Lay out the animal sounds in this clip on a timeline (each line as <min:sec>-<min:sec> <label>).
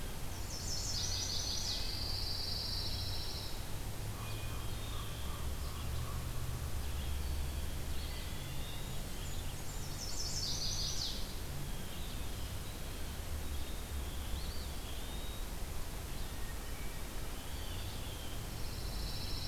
0:00.1-0:01.9 Chestnut-sided Warbler (Setophaga pensylvanica)
0:00.8-0:02.1 Red-breasted Nuthatch (Sitta canadensis)
0:01.5-0:04.0 Pine Warbler (Setophaga pinus)
0:04.1-0:06.5 Common Raven (Corvus corax)
0:04.1-0:05.1 Hermit Thrush (Catharus guttatus)
0:05.5-0:19.5 Red-eyed Vireo (Vireo olivaceus)
0:07.7-0:09.1 Eastern Wood-Pewee (Contopus virens)
0:08.6-0:11.1 Blackburnian Warbler (Setophaga fusca)
0:09.7-0:11.4 Chestnut-sided Warbler (Setophaga pensylvanica)
0:11.6-0:13.5 Blue Jay (Cyanocitta cristata)
0:14.2-0:15.7 Eastern Wood-Pewee (Contopus virens)
0:16.1-0:17.5 Hermit Thrush (Catharus guttatus)
0:17.4-0:18.4 Blue Jay (Cyanocitta cristata)
0:18.4-0:19.5 Pine Warbler (Setophaga pinus)